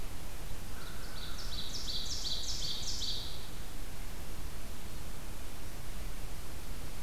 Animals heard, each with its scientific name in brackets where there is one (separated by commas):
American Crow (Corvus brachyrhynchos), Ovenbird (Seiurus aurocapilla)